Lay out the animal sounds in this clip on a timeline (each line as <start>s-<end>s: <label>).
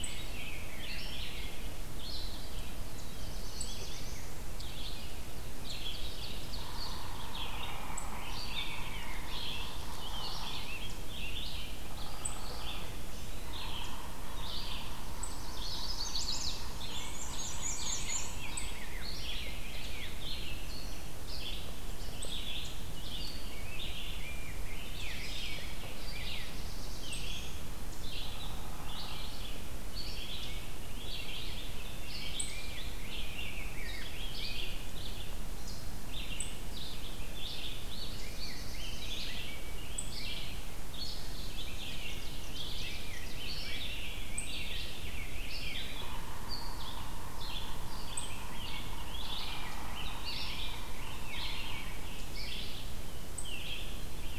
0.0s-48.8s: unidentified call
0.0s-50.8s: Red-eyed Vireo (Vireo olivaceus)
2.9s-4.3s: Black-throated Blue Warbler (Setophaga caerulescens)
5.3s-6.9s: Ovenbird (Seiurus aurocapilla)
6.5s-10.7s: Yellow-bellied Sapsucker (Sphyrapicus varius)
11.8s-12.8s: Hairy Woodpecker (Dryobates villosus)
13.3s-19.2s: Yellow-bellied Sapsucker (Sphyrapicus varius)
15.0s-16.5s: Chestnut-sided Warbler (Setophaga pensylvanica)
16.8s-18.3s: Black-and-white Warbler (Mniotilta varia)
16.8s-20.4s: Rose-breasted Grosbeak (Pheucticus ludovicianus)
23.3s-26.5s: Rose-breasted Grosbeak (Pheucticus ludovicianus)
26.2s-27.6s: Black-throated Blue Warbler (Setophaga caerulescens)
28.3s-29.3s: Hairy Woodpecker (Dryobates villosus)
31.5s-35.2s: Rose-breasted Grosbeak (Pheucticus ludovicianus)
38.0s-39.3s: Black-throated Blue Warbler (Setophaga caerulescens)
38.0s-46.0s: Rose-breasted Grosbeak (Pheucticus ludovicianus)
41.6s-43.5s: Ovenbird (Seiurus aurocapilla)
45.9s-52.1s: Yellow-bellied Sapsucker (Sphyrapicus varius)
48.3s-52.7s: Rose-breasted Grosbeak (Pheucticus ludovicianus)
51.2s-54.4s: Red-eyed Vireo (Vireo olivaceus)
53.2s-54.4s: unidentified call